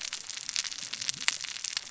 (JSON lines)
{"label": "biophony, cascading saw", "recorder": "SoundTrap 600 or HydroMoth"}